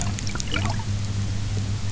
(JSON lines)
{"label": "biophony", "recorder": "SoundTrap 300"}
{"label": "anthrophony, boat engine", "recorder": "SoundTrap 300"}